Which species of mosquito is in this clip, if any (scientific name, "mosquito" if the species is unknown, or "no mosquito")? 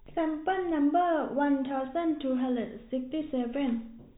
no mosquito